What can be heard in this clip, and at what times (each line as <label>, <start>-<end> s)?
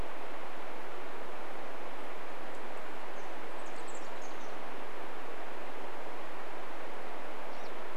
Chestnut-backed Chickadee call, 2-6 s
Pine Siskin call, 6-8 s